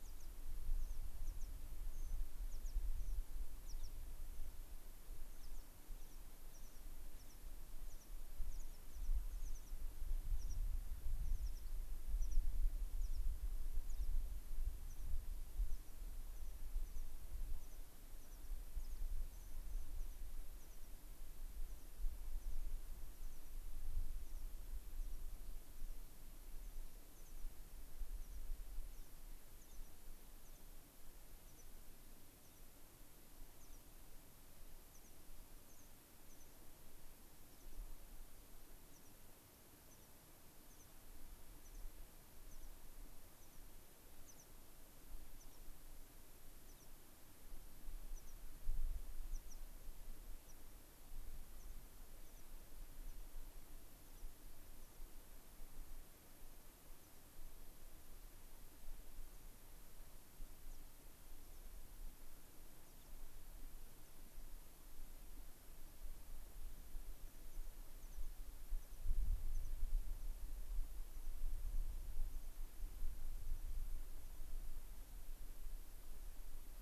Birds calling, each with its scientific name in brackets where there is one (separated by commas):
American Pipit (Anthus rubescens)